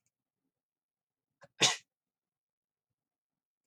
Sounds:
Sneeze